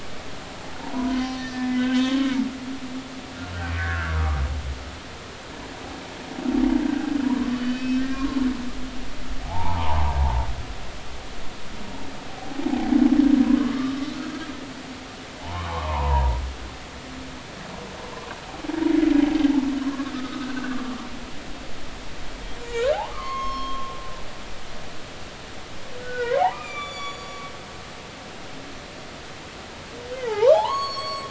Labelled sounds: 0.8	2.3	humpback whale, 0.80 to 6.0 kHz
3.8	4.4	humpback whale, 1.1 to 1.9 kHz
6.9	8.4	humpback whale, 0.90 to 5.4 kHz
9.4	10.4	humpback whale, 0.80 to 1.1 kHz
13.7	14.4	humpback whale, 1.1 to 1.5 kHz
15.4	16.4	humpback whale, 0.80 to 1.2 kHz
18.8	19.1	humpback whale, 2.0 to 2.2 kHz
19.8	21.1	humpback whale, 0.99 to 1.3 kHz
22.6	23.9	humpback whale, 0.80 to 5.4 kHz
26.0	27.4	humpback whale, 0.80 to 8.0 kHz
30.2	31.2	humpback whale, 0.80 to 7.8 kHz

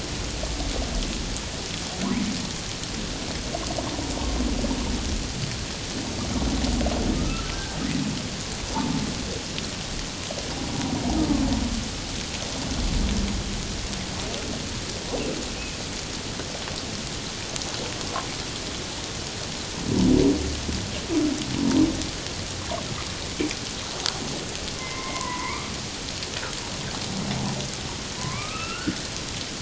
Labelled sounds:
7.1	7.5	humpback whale, 1.2 to 1.4 kHz
24.8	25.7	humpback whale, 0.88 to 2.4 kHz
28.2	29.0	humpback whale, 0.97 to 2.9 kHz

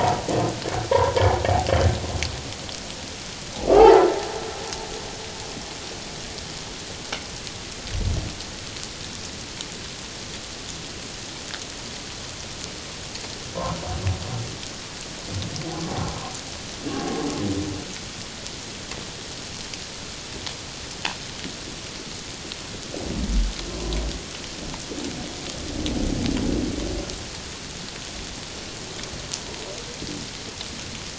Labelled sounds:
0.9	1.2	humpback whale, 0.88 to 1.1 kHz
3.6	4.0	humpback whale, 0.78 to 1.4 kHz
15.9	16.2	humpback whale, 0.78 to 0.88 kHz

